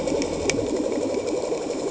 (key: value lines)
label: anthrophony, boat engine
recorder: HydroMoth